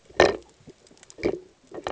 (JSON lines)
{"label": "ambient", "recorder": "HydroMoth"}